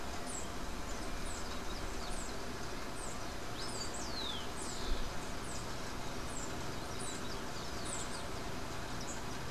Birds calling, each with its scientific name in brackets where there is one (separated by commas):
unidentified bird